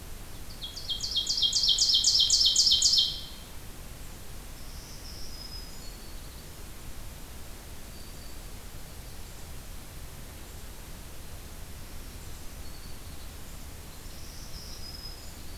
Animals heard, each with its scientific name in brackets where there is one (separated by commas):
Ovenbird (Seiurus aurocapilla), Black-throated Green Warbler (Setophaga virens)